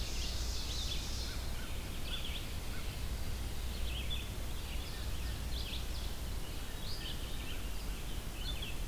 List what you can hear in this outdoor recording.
Ovenbird, Red-eyed Vireo